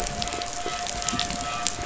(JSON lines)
{"label": "anthrophony, boat engine", "recorder": "SoundTrap 500"}